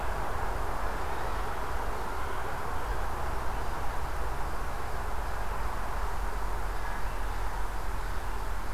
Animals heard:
forest ambience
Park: Marsh-Billings-Rockefeller National Historical Park